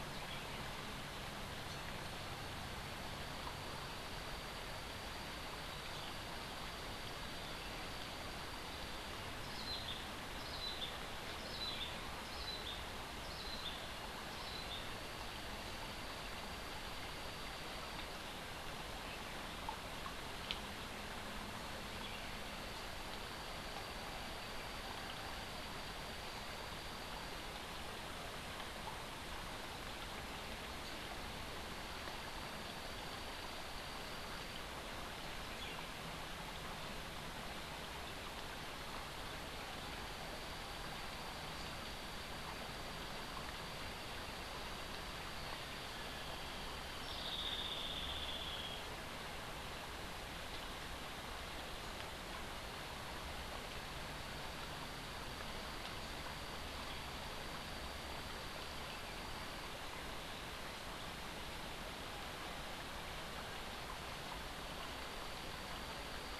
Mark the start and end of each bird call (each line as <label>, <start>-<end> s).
Cabanis's Wren (Cantorchilus modestus), 9.4-14.9 s